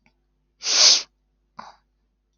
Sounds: Sniff